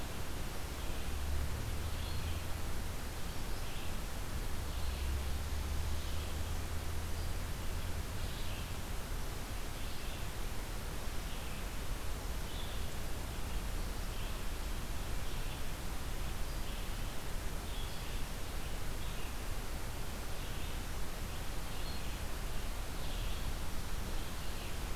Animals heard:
Red-eyed Vireo (Vireo olivaceus)

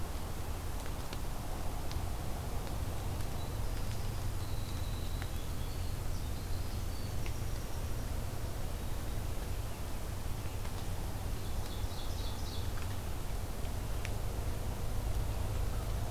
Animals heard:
Ovenbird (Seiurus aurocapilla), Winter Wren (Troglodytes hiemalis)

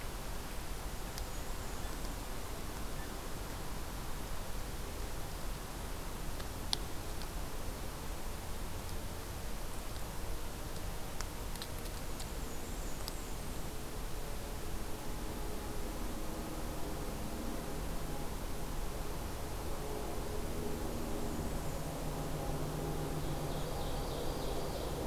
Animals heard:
Ovenbird (Seiurus aurocapilla), Bay-breasted Warbler (Setophaga castanea)

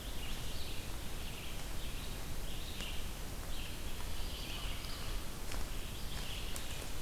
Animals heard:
Red-eyed Vireo (Vireo olivaceus)

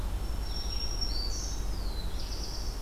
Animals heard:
Black-throated Blue Warbler (Setophaga caerulescens), Black-throated Green Warbler (Setophaga virens), Red-eyed Vireo (Vireo olivaceus)

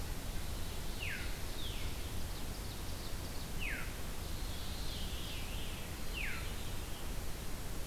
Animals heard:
Veery (Catharus fuscescens), Ovenbird (Seiurus aurocapilla)

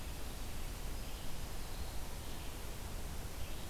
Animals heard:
Red-eyed Vireo (Vireo olivaceus), Black-throated Green Warbler (Setophaga virens)

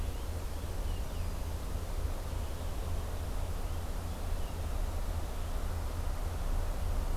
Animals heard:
Purple Finch (Haemorhous purpureus)

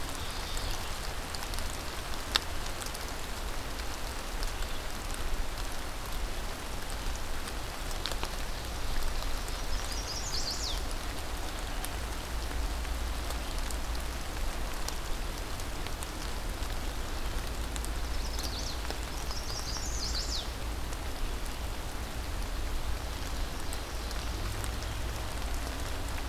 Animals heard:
Ovenbird (Seiurus aurocapilla), Chestnut-sided Warbler (Setophaga pensylvanica), Mourning Warbler (Geothlypis philadelphia)

